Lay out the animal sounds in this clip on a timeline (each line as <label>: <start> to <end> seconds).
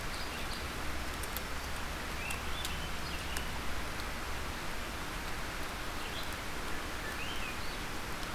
Swainson's Thrush (Catharus ustulatus): 2.0 to 3.6 seconds
Red-eyed Vireo (Vireo olivaceus): 5.8 to 8.3 seconds
Swainson's Thrush (Catharus ustulatus): 6.9 to 7.8 seconds